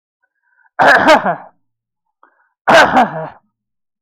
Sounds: Throat clearing